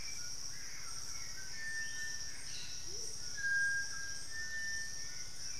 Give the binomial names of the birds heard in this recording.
Momotus momota, Turdus hauxwelli, Ramphastos tucanus, Brotogeris cyanoptera